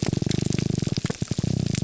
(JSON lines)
{"label": "biophony", "recorder": "SoundTrap 300"}